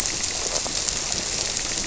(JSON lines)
{"label": "biophony, grouper", "recorder": "SoundTrap 300"}